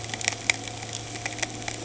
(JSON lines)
{"label": "anthrophony, boat engine", "recorder": "HydroMoth"}